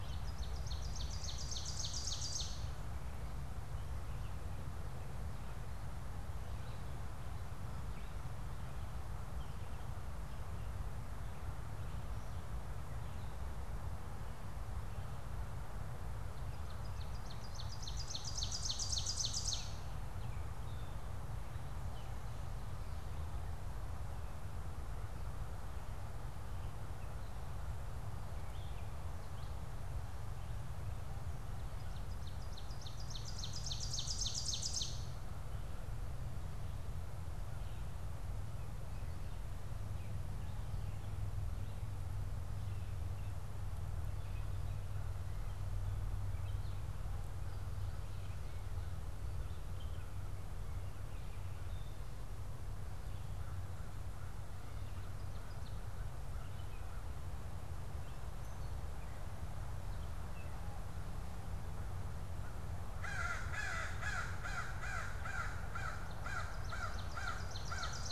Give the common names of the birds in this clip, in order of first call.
Ovenbird, Red-eyed Vireo, Gray Catbird, American Crow